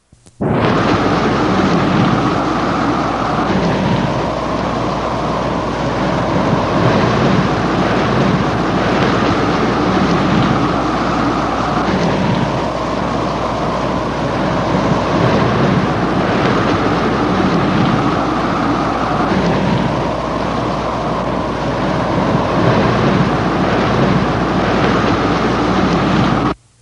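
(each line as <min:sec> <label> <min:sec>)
0:00.4 Wind blows heavily in a steady, modulating pattern with a loud tone. 0:26.6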